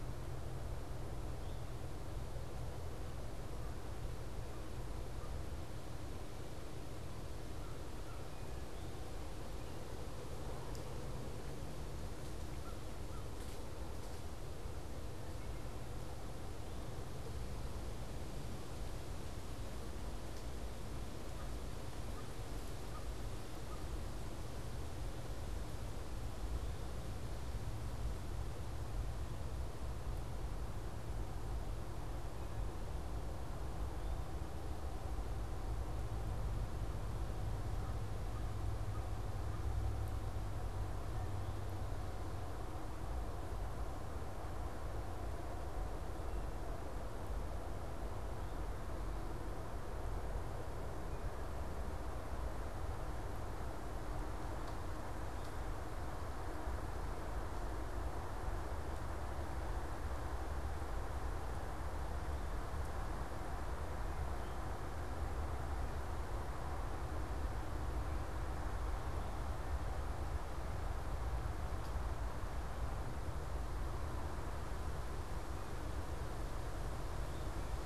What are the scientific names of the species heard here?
Corvus brachyrhynchos